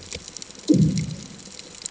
{"label": "anthrophony, bomb", "recorder": "HydroMoth"}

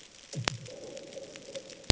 {"label": "anthrophony, bomb", "recorder": "HydroMoth"}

